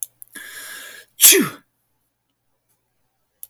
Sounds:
Sneeze